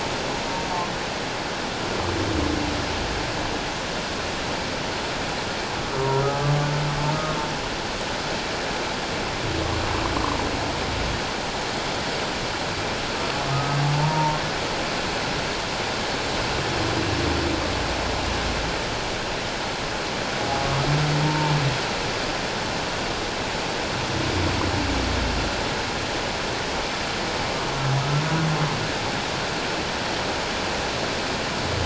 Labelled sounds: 13.5	14.4	humpback whale, 0.84 to 1.3 kHz
21.2	21.5	humpback whale, 0.84 to 1.1 kHz

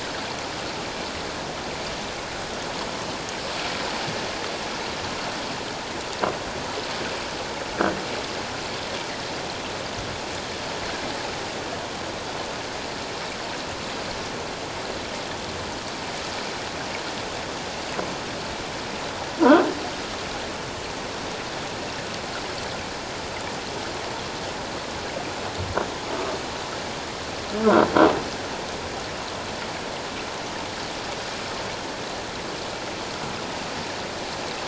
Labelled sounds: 19.4	19.7	croaking sound likely from a nearby submerged object, 1.2 to 1.7 kHz

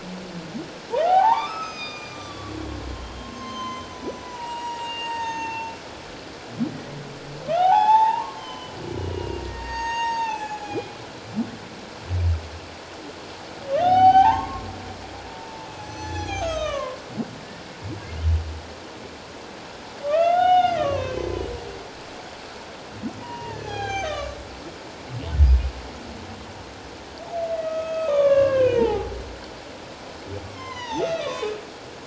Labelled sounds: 1.0	5.7	humpback whale, 0.78 to 7.7 kHz
7.5	11.0	humpback whale, 0.78 to 6.9 kHz
13.8	14.7	humpback whale, 0.78 to 6.4 kHz
15.4	17.0	humpback whale, 0.78 to 6.7 kHz
20.0	21.3	humpback whale, 0.78 to 6.3 kHz
23.2	24.4	humpback whale, 0.78 to 7.2 kHz
25.4	25.7	humpback whale, 2.4 to 2.6 kHz
27.5	29.1	humpback whale, 0.78 to 3.7 kHz
30.4	31.6	humpback whale, 0.78 to 5.5 kHz

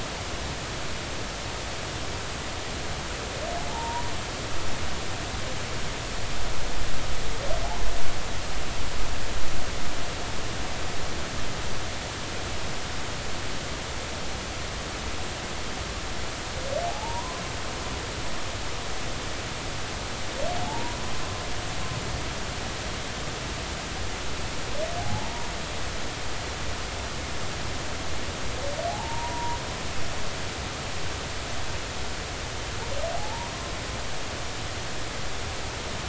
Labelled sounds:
3.7	4.1	humpback whale, 0.80 to 1.0 kHz
7.6	7.9	humpback whale, 0.80 to 1.1 kHz
16.8	17.4	humpback whale, 0.80 to 1.1 kHz
20.6	21.0	humpback whale, 0.80 to 1.1 kHz
25.0	25.5	humpback whale, 0.80 to 0.99 kHz
28.9	29.6	humpback whale, 0.80 to 1.0 kHz
33.2	33.5	humpback whale, 0.80 to 1.1 kHz

